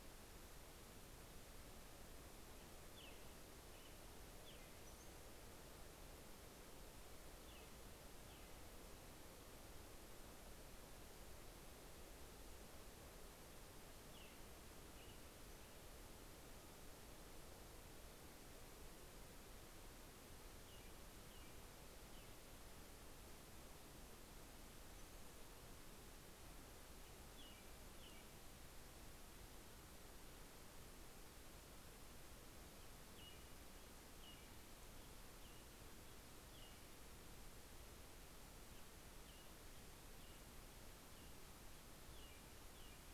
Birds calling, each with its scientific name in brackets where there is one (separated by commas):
Brown-headed Cowbird (Molothrus ater), American Robin (Turdus migratorius)